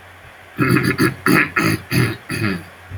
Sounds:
Throat clearing